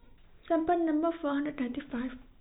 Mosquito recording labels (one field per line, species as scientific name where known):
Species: no mosquito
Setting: cup